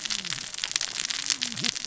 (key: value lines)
label: biophony, cascading saw
recorder: SoundTrap 600 or HydroMoth